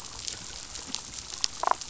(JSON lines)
{"label": "biophony, damselfish", "recorder": "SoundTrap 500"}